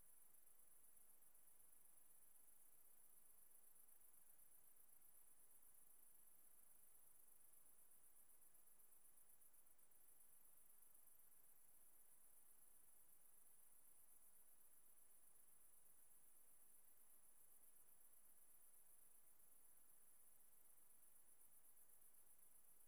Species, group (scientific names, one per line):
Tettigonia viridissima
Orthoptera